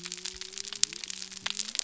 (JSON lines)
{"label": "biophony", "recorder": "SoundTrap 300"}